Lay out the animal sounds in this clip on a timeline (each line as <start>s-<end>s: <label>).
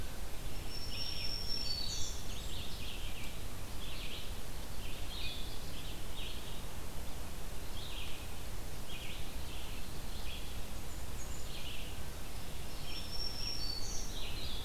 0.4s-2.1s: Black-throated Green Warbler (Setophaga virens)
0.5s-14.6s: Red-eyed Vireo (Vireo olivaceus)
1.3s-2.5s: Blackburnian Warbler (Setophaga fusca)
4.8s-14.6s: Blue-headed Vireo (Vireo solitarius)
10.1s-11.6s: Blackburnian Warbler (Setophaga fusca)
12.4s-14.1s: Black-throated Green Warbler (Setophaga virens)